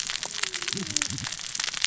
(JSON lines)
{"label": "biophony, cascading saw", "recorder": "SoundTrap 600 or HydroMoth"}